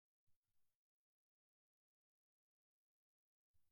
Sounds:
Laughter